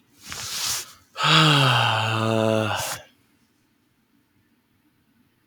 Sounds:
Sigh